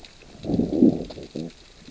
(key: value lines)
label: biophony, growl
recorder: SoundTrap 600 or HydroMoth